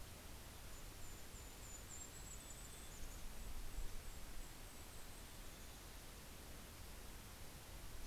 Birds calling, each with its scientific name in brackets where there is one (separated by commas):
Mountain Chickadee (Poecile gambeli), Yellow-rumped Warbler (Setophaga coronata)